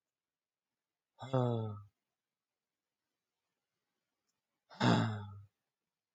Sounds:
Sigh